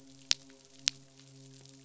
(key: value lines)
label: biophony, midshipman
recorder: SoundTrap 500